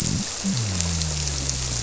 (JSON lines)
{"label": "biophony", "recorder": "SoundTrap 300"}